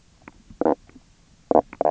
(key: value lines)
label: biophony, knock croak
recorder: SoundTrap 300